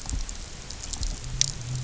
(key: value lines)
label: anthrophony, boat engine
recorder: SoundTrap 300